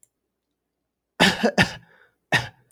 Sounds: Cough